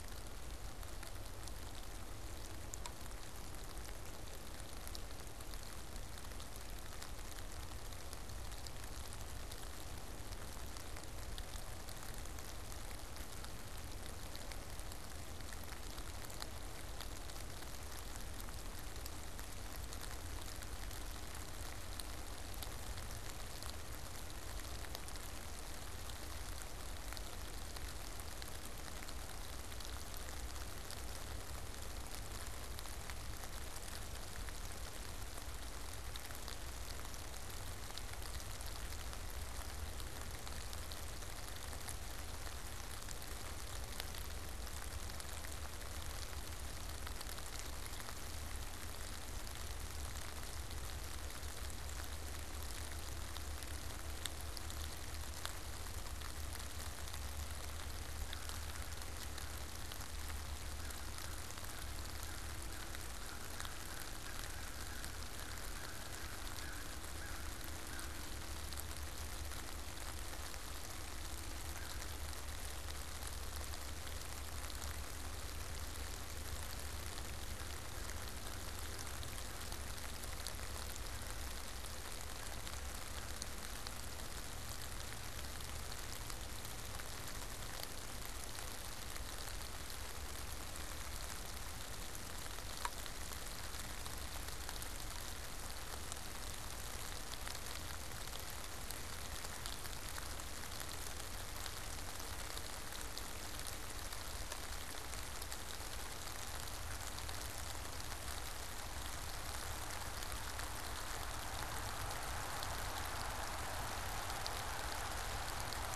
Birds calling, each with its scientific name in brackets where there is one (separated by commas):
American Crow (Corvus brachyrhynchos)